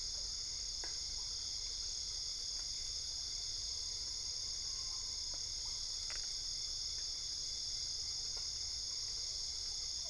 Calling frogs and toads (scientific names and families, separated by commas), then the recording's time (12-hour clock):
Dendropsophus cruzi (Hylidae)
2:00am